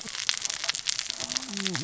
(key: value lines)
label: biophony, cascading saw
recorder: SoundTrap 600 or HydroMoth